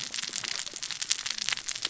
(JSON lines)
{"label": "biophony, cascading saw", "recorder": "SoundTrap 600 or HydroMoth"}